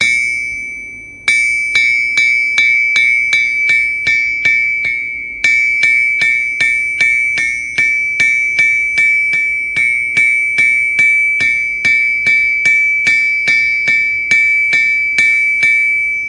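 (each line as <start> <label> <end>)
0.0 A hammer hitting an anvil with a rhythmic, loud, high-pitched sound. 16.3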